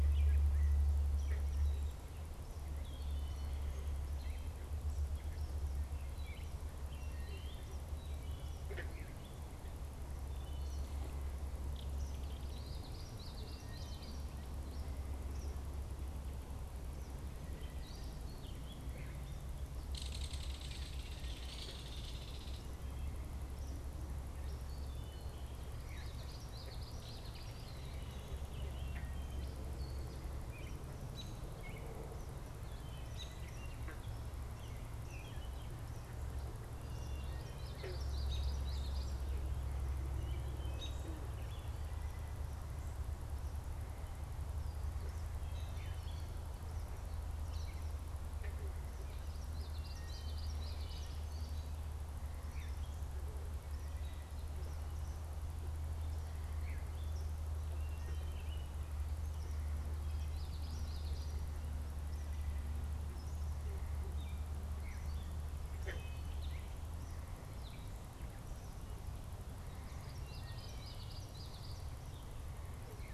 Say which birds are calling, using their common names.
Gray Catbird, Wood Thrush, Common Yellowthroat, Belted Kingfisher, American Robin